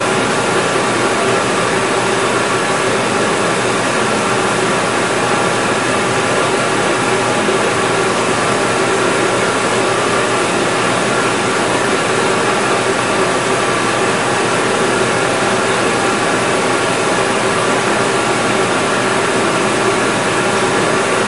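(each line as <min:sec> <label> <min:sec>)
0:00.0 A loud machine produces a continuous metallic sound. 0:21.3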